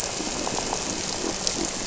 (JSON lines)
{"label": "anthrophony, boat engine", "recorder": "SoundTrap 300"}
{"label": "biophony", "recorder": "SoundTrap 300"}